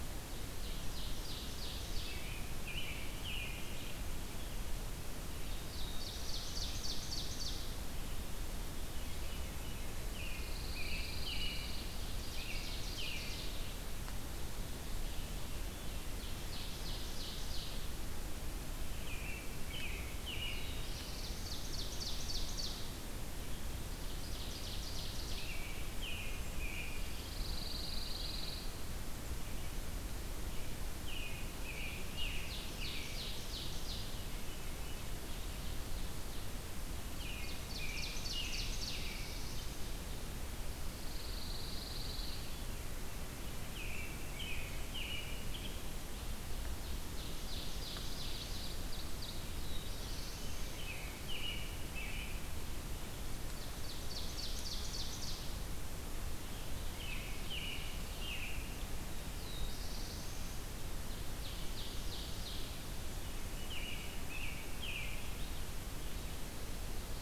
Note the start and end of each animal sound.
[0.00, 2.36] Ovenbird (Seiurus aurocapilla)
[0.00, 16.05] Red-eyed Vireo (Vireo olivaceus)
[2.04, 3.81] American Robin (Turdus migratorius)
[5.51, 7.95] Ovenbird (Seiurus aurocapilla)
[8.63, 9.99] Veery (Catharus fuscescens)
[9.86, 13.41] American Robin (Turdus migratorius)
[10.16, 12.11] Pine Warbler (Setophaga pinus)
[11.97, 13.61] Ovenbird (Seiurus aurocapilla)
[15.85, 18.15] Ovenbird (Seiurus aurocapilla)
[18.71, 21.25] American Robin (Turdus migratorius)
[20.51, 22.90] Ovenbird (Seiurus aurocapilla)
[23.43, 25.73] Ovenbird (Seiurus aurocapilla)
[25.13, 27.41] American Robin (Turdus migratorius)
[26.78, 28.85] Pine Warbler (Setophaga pinus)
[30.90, 33.22] American Robin (Turdus migratorius)
[31.95, 39.35] Ovenbird (Seiurus aurocapilla)
[33.74, 35.13] Veery (Catharus fuscescens)
[37.00, 39.82] American Robin (Turdus migratorius)
[38.36, 39.80] Black-throated Blue Warbler (Setophaga caerulescens)
[40.49, 42.63] Pine Warbler (Setophaga pinus)
[41.98, 42.96] Veery (Catharus fuscescens)
[43.50, 45.81] American Robin (Turdus migratorius)
[46.48, 49.48] Ovenbird (Seiurus aurocapilla)
[49.33, 51.05] Black-throated Blue Warbler (Setophaga caerulescens)
[50.57, 52.46] American Robin (Turdus migratorius)
[53.41, 55.52] Ovenbird (Seiurus aurocapilla)
[56.66, 58.92] American Robin (Turdus migratorius)
[58.94, 60.87] Black-throated Blue Warbler (Setophaga caerulescens)
[60.90, 62.94] Ovenbird (Seiurus aurocapilla)
[63.42, 65.76] American Robin (Turdus migratorius)

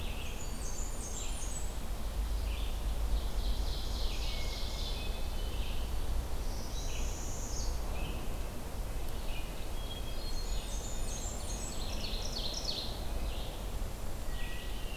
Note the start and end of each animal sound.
[0.00, 14.96] Red-eyed Vireo (Vireo olivaceus)
[0.14, 1.83] Blackburnian Warbler (Setophaga fusca)
[3.00, 5.15] Ovenbird (Seiurus aurocapilla)
[4.11, 5.67] Hermit Thrush (Catharus guttatus)
[6.23, 7.76] Northern Parula (Setophaga americana)
[7.82, 11.26] Red-breasted Nuthatch (Sitta canadensis)
[9.48, 11.18] Hermit Thrush (Catharus guttatus)
[10.13, 11.86] Blackburnian Warbler (Setophaga fusca)
[10.95, 12.99] Ovenbird (Seiurus aurocapilla)
[14.20, 14.96] Hermit Thrush (Catharus guttatus)

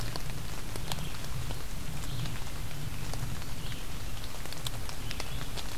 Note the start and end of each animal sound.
[0.72, 5.78] Red-eyed Vireo (Vireo olivaceus)

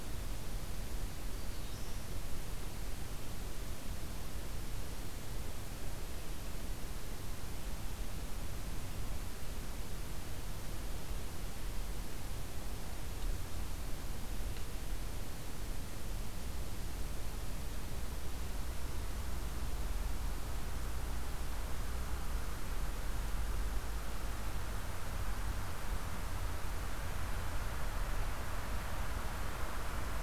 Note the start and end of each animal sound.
[0.77, 2.01] Black-throated Green Warbler (Setophaga virens)

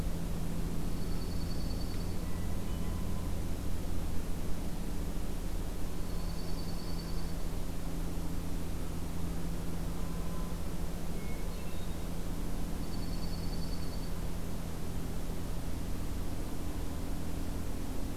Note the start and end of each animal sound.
[0.67, 2.45] Dark-eyed Junco (Junco hyemalis)
[2.17, 3.08] Hermit Thrush (Catharus guttatus)
[5.97, 7.63] Dark-eyed Junco (Junco hyemalis)
[10.95, 12.25] Hermit Thrush (Catharus guttatus)
[12.70, 14.38] Dark-eyed Junco (Junco hyemalis)

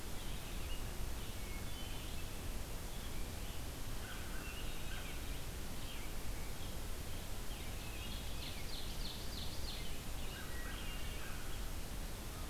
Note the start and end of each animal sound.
[0.00, 12.49] Red-eyed Vireo (Vireo olivaceus)
[1.50, 2.18] Wood Thrush (Hylocichla mustelina)
[4.24, 5.21] Wood Thrush (Hylocichla mustelina)
[7.77, 8.23] Wood Thrush (Hylocichla mustelina)
[7.78, 9.93] Ovenbird (Seiurus aurocapilla)
[10.20, 11.51] American Crow (Corvus brachyrhynchos)
[10.25, 11.15] Wood Thrush (Hylocichla mustelina)

